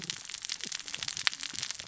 {"label": "biophony, cascading saw", "recorder": "SoundTrap 600 or HydroMoth"}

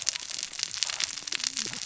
{"label": "biophony, cascading saw", "recorder": "SoundTrap 600 or HydroMoth"}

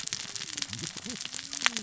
{"label": "biophony, cascading saw", "recorder": "SoundTrap 600 or HydroMoth"}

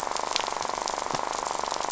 {"label": "biophony, rattle", "recorder": "SoundTrap 500"}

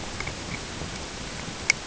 {"label": "ambient", "recorder": "HydroMoth"}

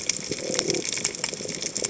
{"label": "biophony", "recorder": "HydroMoth"}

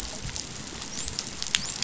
{"label": "biophony, dolphin", "recorder": "SoundTrap 500"}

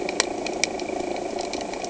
{"label": "anthrophony, boat engine", "recorder": "HydroMoth"}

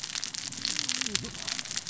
{"label": "biophony, cascading saw", "recorder": "SoundTrap 600 or HydroMoth"}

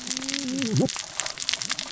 {"label": "biophony, cascading saw", "recorder": "SoundTrap 600 or HydroMoth"}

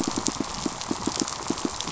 {"label": "biophony, pulse", "recorder": "SoundTrap 500"}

